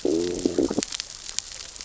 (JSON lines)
{"label": "biophony, growl", "recorder": "SoundTrap 600 or HydroMoth"}